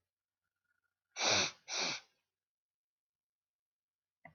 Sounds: Sniff